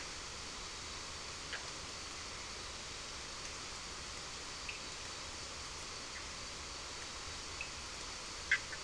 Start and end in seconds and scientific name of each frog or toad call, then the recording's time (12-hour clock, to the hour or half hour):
1.4	1.7	Boana bischoffi
4.5	4.9	Sphaenorhynchus surdus
7.5	7.8	Sphaenorhynchus surdus
8.3	8.8	Boana bischoffi
midnight